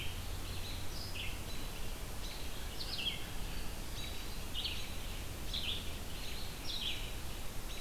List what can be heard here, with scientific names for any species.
Turdus migratorius, Vireo olivaceus